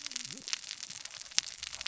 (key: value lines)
label: biophony, cascading saw
recorder: SoundTrap 600 or HydroMoth